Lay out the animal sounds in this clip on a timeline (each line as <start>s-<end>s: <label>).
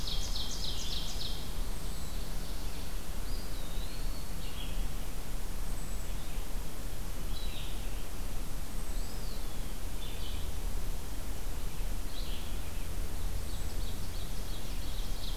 0.0s-2.3s: Hermit Thrush (Catharus guttatus)
0.0s-3.0s: Ovenbird (Seiurus aurocapilla)
0.0s-15.4s: Red-eyed Vireo (Vireo olivaceus)
3.2s-4.5s: Eastern Wood-Pewee (Contopus virens)
5.5s-15.4s: unidentified call
8.7s-9.7s: Eastern Wood-Pewee (Contopus virens)
13.2s-15.4s: Ovenbird (Seiurus aurocapilla)